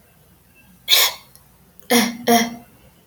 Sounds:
Cough